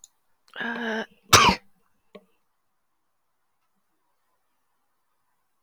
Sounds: Sneeze